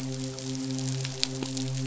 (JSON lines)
{"label": "biophony, midshipman", "recorder": "SoundTrap 500"}